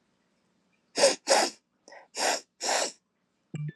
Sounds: Sniff